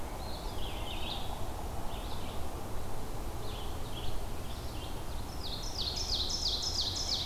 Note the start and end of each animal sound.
[0.00, 7.25] Red-eyed Vireo (Vireo olivaceus)
[5.18, 7.25] Ovenbird (Seiurus aurocapilla)

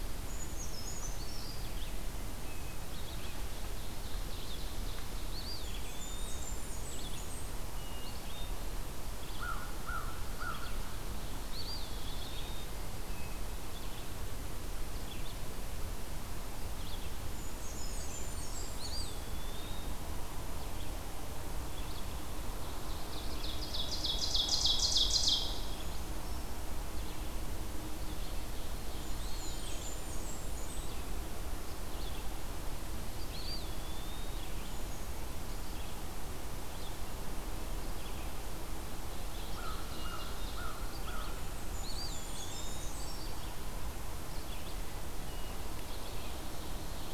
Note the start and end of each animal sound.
[0.00, 2.09] Brown Creeper (Certhia americana)
[1.42, 47.13] Red-eyed Vireo (Vireo olivaceus)
[2.79, 5.46] Ovenbird (Seiurus aurocapilla)
[5.14, 6.59] Eastern Wood-Pewee (Contopus virens)
[5.41, 7.45] Blackburnian Warbler (Setophaga fusca)
[7.74, 8.66] Hermit Thrush (Catharus guttatus)
[9.10, 11.26] American Crow (Corvus brachyrhynchos)
[11.35, 12.79] Eastern Wood-Pewee (Contopus virens)
[13.12, 13.71] Hermit Thrush (Catharus guttatus)
[17.20, 18.37] Brown Creeper (Certhia americana)
[17.44, 19.30] Blackburnian Warbler (Setophaga fusca)
[18.55, 20.24] Eastern Wood-Pewee (Contopus virens)
[22.72, 25.86] Ovenbird (Seiurus aurocapilla)
[28.96, 29.93] Eastern Wood-Pewee (Contopus virens)
[29.26, 31.07] Blackburnian Warbler (Setophaga fusca)
[33.18, 34.81] Eastern Wood-Pewee (Contopus virens)
[39.03, 40.91] Ovenbird (Seiurus aurocapilla)
[39.34, 41.66] American Crow (Corvus brachyrhynchos)
[41.23, 43.24] Blackburnian Warbler (Setophaga fusca)
[41.69, 43.01] Eastern Wood-Pewee (Contopus virens)
[42.17, 43.49] Brown Creeper (Certhia americana)

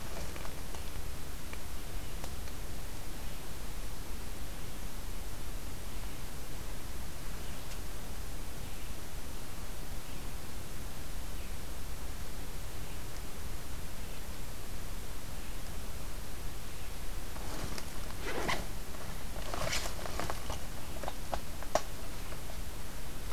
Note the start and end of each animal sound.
[1.71, 15.04] Red-eyed Vireo (Vireo olivaceus)

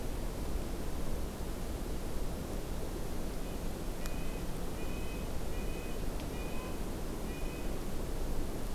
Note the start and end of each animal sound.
[3.81, 7.78] Red-breasted Nuthatch (Sitta canadensis)

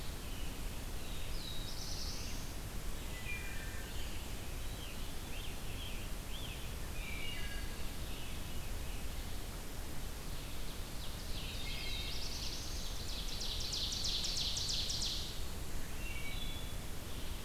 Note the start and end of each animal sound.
[0.97, 2.51] Black-throated Blue Warbler (Setophaga caerulescens)
[3.06, 3.91] Wood Thrush (Hylocichla mustelina)
[4.63, 6.66] Scarlet Tanager (Piranga olivacea)
[6.92, 7.88] Wood Thrush (Hylocichla mustelina)
[7.83, 8.97] Veery (Catharus fuscescens)
[10.63, 15.29] Ovenbird (Seiurus aurocapilla)
[11.46, 12.21] Wood Thrush (Hylocichla mustelina)
[11.54, 13.03] Black-throated Blue Warbler (Setophaga caerulescens)
[15.92, 16.87] Wood Thrush (Hylocichla mustelina)

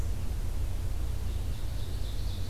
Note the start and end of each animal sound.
[0.00, 2.49] Red-eyed Vireo (Vireo olivaceus)
[1.26, 2.49] Ovenbird (Seiurus aurocapilla)

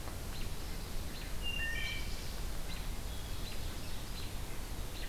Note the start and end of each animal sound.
[0.00, 1.35] Pine Warbler (Setophaga pinus)
[1.26, 2.18] Wood Thrush (Hylocichla mustelina)
[2.88, 4.30] Hermit Thrush (Catharus guttatus)

